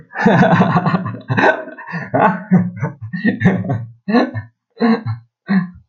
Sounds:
Laughter